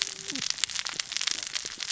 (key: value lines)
label: biophony, cascading saw
recorder: SoundTrap 600 or HydroMoth